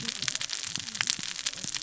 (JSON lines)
{"label": "biophony, cascading saw", "recorder": "SoundTrap 600 or HydroMoth"}